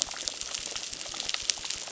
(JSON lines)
{"label": "biophony, crackle", "recorder": "SoundTrap 600"}